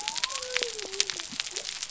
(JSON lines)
{"label": "biophony", "recorder": "SoundTrap 300"}